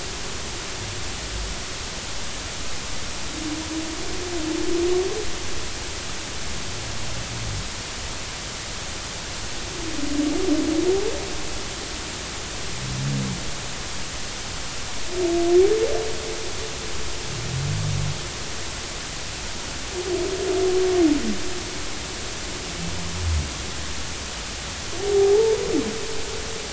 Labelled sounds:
25.1	25.6	humpback whale, 0.80 to 0.96 kHz

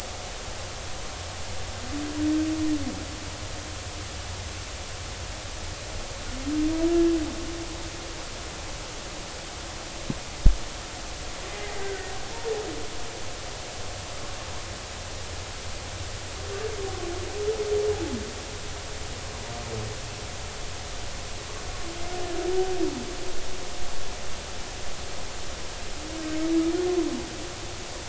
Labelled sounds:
11.8	12.1	humpback whale, 1.4 to 1.6 kHz

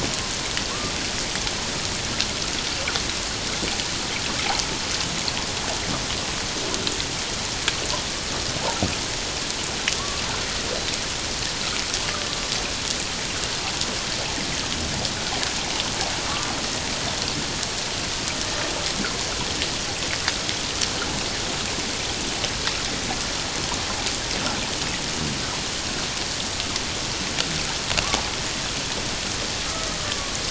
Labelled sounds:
30.0	30.3	killer whale, Bigg's (transient), 1.1 to 1.2 kHz

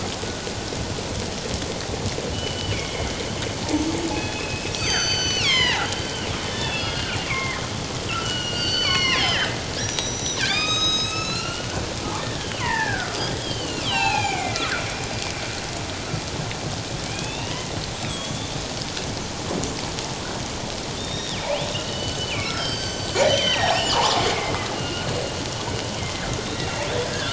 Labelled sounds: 2.3	3.1	killer whale, northern resident, G clan, 2.0 to 3.1 kHz
4.1	5.9	killer whale, northern resident, G clan, 0.78 to 7.8 kHz
6.5	11.8	killer whale, northern resident, G clan, 0.97 to 8.0 kHz
12.2	14.7	killer whale, northern resident, G clan, 0.78 to 5.0 kHz
17.0	18.7	killer whale, northern resident, G clan, 0.81 to 3.8 kHz
21.0	25.1	killer whale, northern resident, G clan, 0.78 to 8.0 kHz
26.4	26.9	killer whale, northern resident, G clan, 1.8 to 4.0 kHz

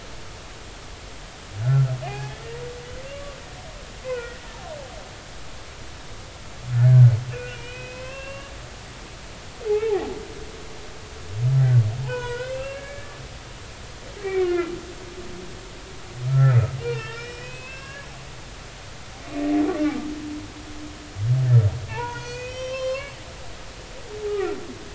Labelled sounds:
2.0	2.4	humpback whale, 0.80 to 2.6 kHz
4.0	4.4	humpback whale, 1.3 to 2.7 kHz
6.8	8.5	humpback whale, 0.99 to 5.3 kHz
9.7	10.1	humpback whale, 0.80 to 2.3 kHz
12.0	13.1	humpback whale, 0.83 to 5.2 kHz
14.2	14.7	humpback whale, 1.3 to 2.6 kHz
16.3	18.1	humpback whale, 1.2 to 5.6 kHz
21.9	23.2	humpback whale, 0.83 to 8.0 kHz
24.2	24.5	humpback whale, 0.80 to 0.86 kHz

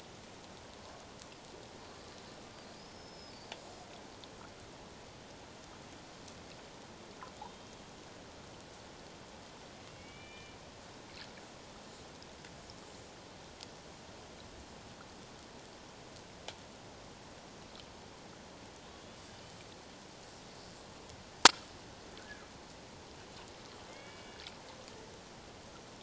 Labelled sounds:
2.8	3.6	killer whale, Bigg's (transient), 4.4 to 5.5 kHz
7.5	7.8	killer whale, Bigg's (transient), 3.1 to 3.3 kHz
9.9	10.6	killer whale, Bigg's (transient), 1.7 to 3.2 kHz
18.9	19.2	killer whale, Bigg's (transient), 3.3 to 3.5 kHz
22.2	22.4	killer whale, Bigg's (transient), 1.4 to 1.8 kHz
23.9	24.4	killer whale, Bigg's (transient), 2.0 to 3.5 kHz

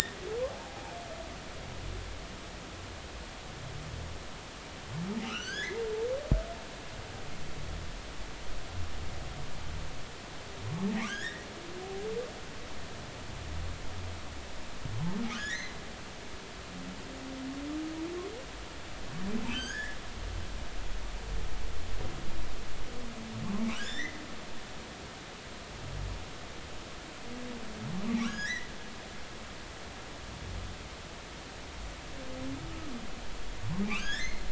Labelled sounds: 0.6	0.9	humpback whale, 0.80 to 0.96 kHz
5.2	5.8	humpback whale, 1.2 to 6.9 kHz
11.0	11.5	humpback whale, 1.4 to 6.9 kHz
15.3	15.8	humpback whale, 1.4 to 4.2 kHz
19.5	20.0	humpback whale, 1.4 to 8.0 kHz
23.7	24.2	humpback whale, 1.4 to 5.5 kHz
28.2	28.7	humpback whale, 1.3 to 8.0 kHz
33.8	34.5	humpback whale, 1.5 to 5.7 kHz

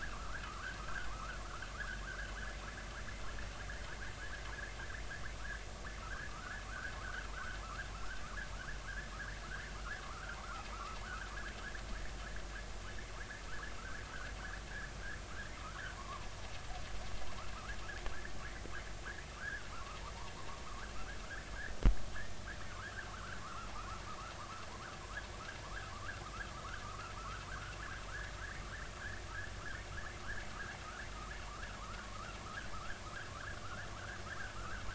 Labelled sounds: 0.1	0.4	vessel noise, 1.1 to 1.8 kHz
0.8	2.0	vessel noise, 0.99 to 1.9 kHz
6.0	7.6	vessel noise, 0.99 to 1.9 kHz
7.9	8.2	vessel noise, 1.2 to 1.7 kHz
10.0	10.4	vessel noise, 0.96 to 1.7 kHz
10.7	11.0	vessel noise, 1.1 to 1.4 kHz
13.5	14.0	vessel noise, 1.1 to 2.0 kHz
15.6	16.3	vessel noise, 0.90 to 1.5 kHz
19.4	20.0	vessel noise, 1.0 to 1.8 kHz
20.7	20.9	vessel noise, 1.0 to 1.7 kHz
23.1	23.7	vessel noise, 0.99 to 1.7 kHz
25.6	26.2	vessel noise, 0.93 to 1.8 kHz
26.8	27.7	vessel noise, 1.0 to 1.7 kHz
29.6	29.8	vessel noise, 1.2 to 1.9 kHz
31.4	32.4	vessel noise, 0.90 to 1.8 kHz
32.7	33.9	vessel noise, 0.99 to 1.9 kHz

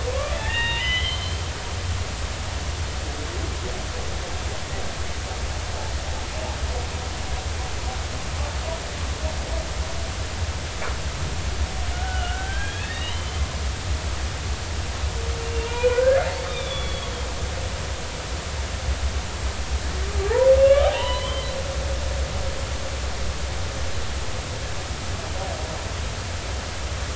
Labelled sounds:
0.4	1.4	humpback whale, 0.90 to 3.8 kHz
11.9	13.4	humpback whale, 1.3 to 3.9 kHz
15.5	17.1	humpback whale, 0.90 to 3.7 kHz
20.6	21.5	humpback whale, 0.90 to 3.3 kHz

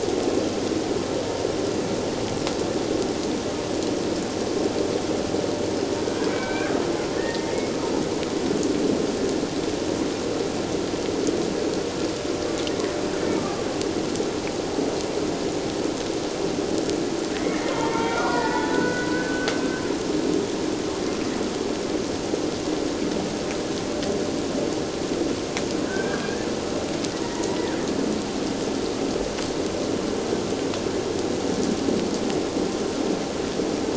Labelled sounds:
6.3	6.7	killer whale, Bigg's (transient), 1.5 to 2.5 kHz
7.2	8.0	killer whale, Bigg's (transient), 1.2 to 2.2 kHz
17.3	19.5	killer whale, Bigg's (transient), 0.81 to 4.9 kHz
25.8	26.5	killer whale, Bigg's (transient), 1.4 to 1.8 kHz
27.2	27.8	killer whale, Bigg's (transient), 1.4 to 2.0 kHz

